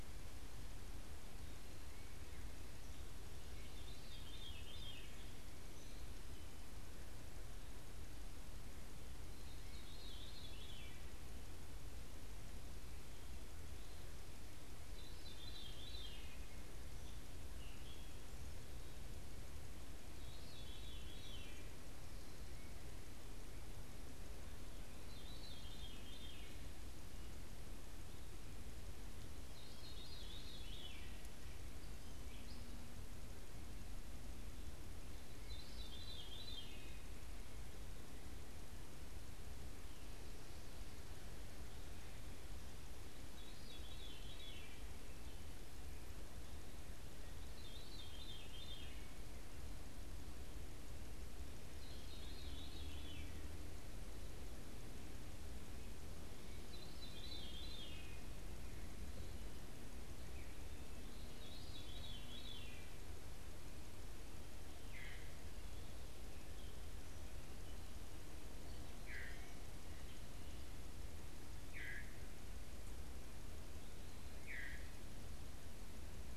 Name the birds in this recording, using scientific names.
Catharus fuscescens, unidentified bird